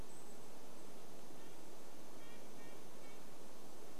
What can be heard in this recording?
Golden-crowned Kinglet call, Red-breasted Nuthatch song